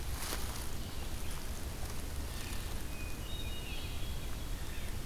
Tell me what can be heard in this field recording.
Hermit Thrush, Blue Jay